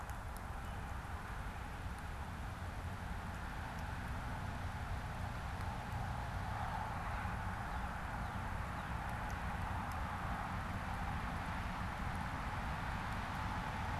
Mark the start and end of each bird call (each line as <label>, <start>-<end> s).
American Robin (Turdus migratorius), 0.4-1.1 s
Northern Cardinal (Cardinalis cardinalis), 6.5-9.1 s